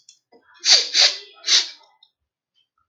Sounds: Sniff